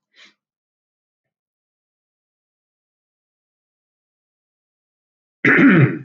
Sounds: Throat clearing